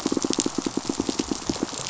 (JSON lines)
{"label": "biophony, pulse", "recorder": "SoundTrap 500"}